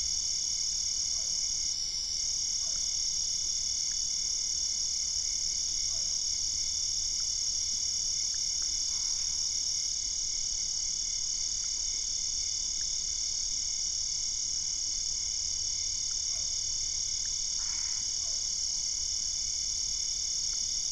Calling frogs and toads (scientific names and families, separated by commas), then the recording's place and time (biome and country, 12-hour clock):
Physalaemus cuvieri (Leptodactylidae), Boana albopunctata (Hylidae)
Cerrado, Brazil, 9:15pm